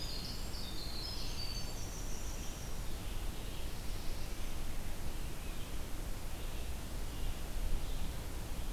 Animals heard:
Red-eyed Vireo (Vireo olivaceus), Winter Wren (Troglodytes hiemalis)

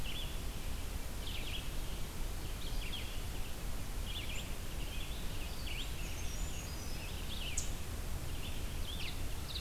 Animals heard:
Red-eyed Vireo (Vireo olivaceus), Brown Creeper (Certhia americana)

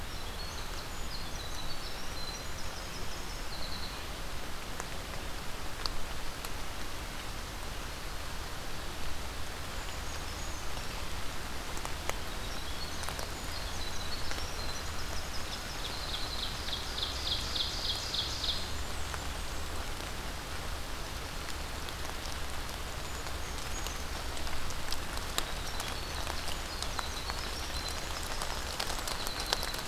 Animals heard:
Brown Creeper (Certhia americana), Ovenbird (Seiurus aurocapilla), Blackburnian Warbler (Setophaga fusca), Winter Wren (Troglodytes hiemalis)

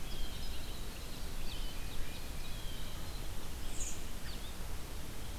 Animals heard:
Tufted Titmouse (Baeolophus bicolor), Blue Jay (Cyanocitta cristata), Winter Wren (Troglodytes hiemalis), Red-eyed Vireo (Vireo olivaceus)

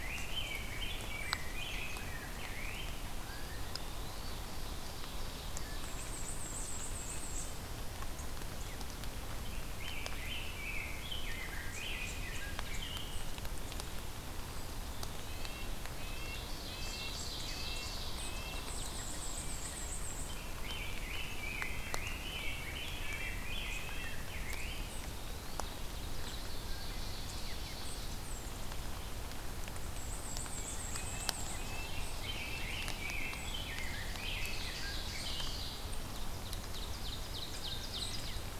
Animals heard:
Rose-breasted Grosbeak (Pheucticus ludovicianus), Black-and-white Warbler (Mniotilta varia), Red-breasted Nuthatch (Sitta canadensis), Eastern Wood-Pewee (Contopus virens), Ovenbird (Seiurus aurocapilla)

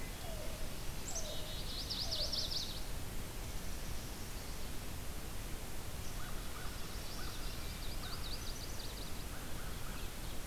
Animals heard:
Wood Thrush (Hylocichla mustelina), Black-capped Chickadee (Poecile atricapillus), Ovenbird (Seiurus aurocapilla), Yellow-billed Cuckoo (Coccyzus americanus), American Crow (Corvus brachyrhynchos), Chestnut-sided Warbler (Setophaga pensylvanica)

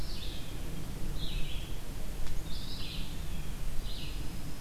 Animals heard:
Red-eyed Vireo (Vireo olivaceus), Eastern Wood-Pewee (Contopus virens)

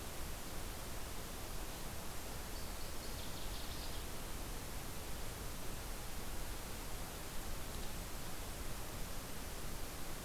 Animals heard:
Northern Waterthrush (Parkesia noveboracensis)

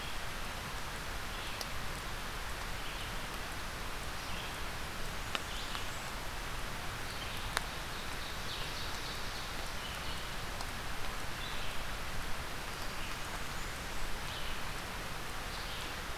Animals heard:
Ovenbird (Seiurus aurocapilla), Red-eyed Vireo (Vireo olivaceus), Blackburnian Warbler (Setophaga fusca)

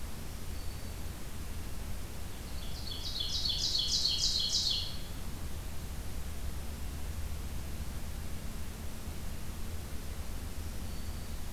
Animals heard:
Ovenbird (Seiurus aurocapilla), Black-throated Green Warbler (Setophaga virens)

